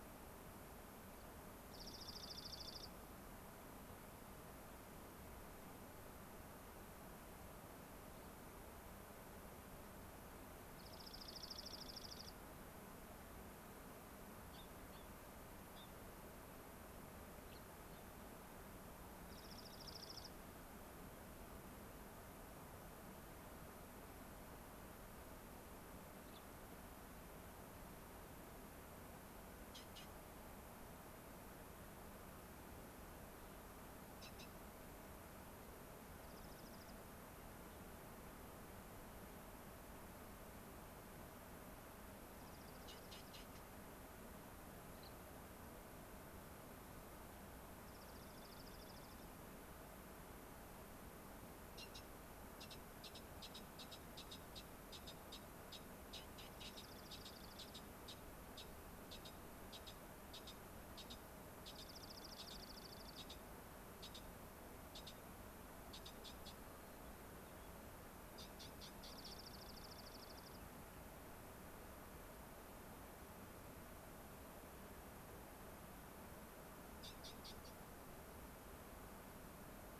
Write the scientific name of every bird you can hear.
Junco hyemalis, Leucosticte tephrocotis, Zonotrichia leucophrys